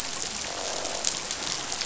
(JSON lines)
{"label": "biophony, croak", "recorder": "SoundTrap 500"}